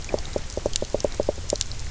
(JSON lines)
{"label": "biophony, knock croak", "recorder": "SoundTrap 300"}